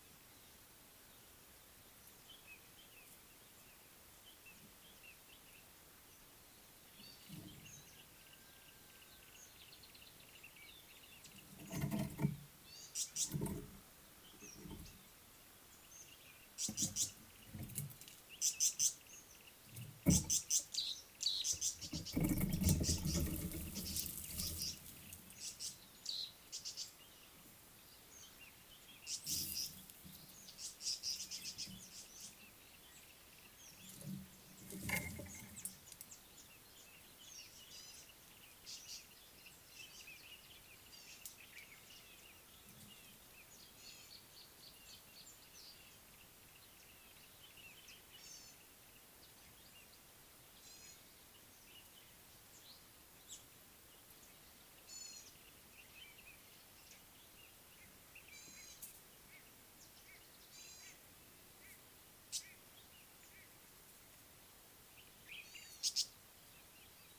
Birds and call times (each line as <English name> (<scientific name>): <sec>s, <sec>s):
Gray-backed Camaroptera (Camaroptera brevicaudata): 7.1s, 12.9s, 50.8s, 55.1s, 58.6s, 60.8s
Tawny-flanked Prinia (Prinia subflava): 13.1s, 18.7s, 25.7s, 31.2s, 62.4s, 66.0s
Yellow-breasted Apalis (Apalis flavida): 19.5s, 33.1s
Red-fronted Barbet (Tricholaema diademata): 43.4s
Northern Puffback (Dryoscopus gambensis): 44.7s
Speckled Mousebird (Colius striatus): 53.4s